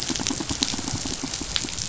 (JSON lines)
{"label": "biophony, pulse", "recorder": "SoundTrap 500"}